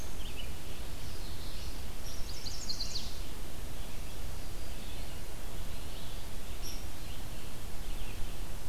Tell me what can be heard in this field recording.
Red-eyed Vireo, Common Yellowthroat, Chestnut-sided Warbler, Hairy Woodpecker